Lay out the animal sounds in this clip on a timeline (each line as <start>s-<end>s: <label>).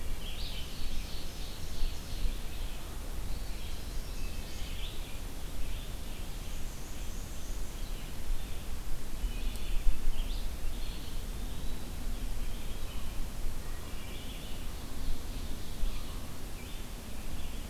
0.0s-17.7s: Red-eyed Vireo (Vireo olivaceus)
0.0s-2.7s: Ovenbird (Seiurus aurocapilla)
3.4s-4.8s: Chestnut-sided Warbler (Setophaga pensylvanica)
5.8s-8.3s: Black-and-white Warbler (Mniotilta varia)
9.3s-10.0s: Wood Thrush (Hylocichla mustelina)
10.6s-12.3s: Eastern Wood-Pewee (Contopus virens)
13.4s-14.7s: Wood Thrush (Hylocichla mustelina)
14.2s-16.3s: Ovenbird (Seiurus aurocapilla)
15.7s-16.5s: American Crow (Corvus brachyrhynchos)